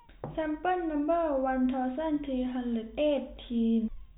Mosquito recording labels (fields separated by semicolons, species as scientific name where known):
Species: no mosquito; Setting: cup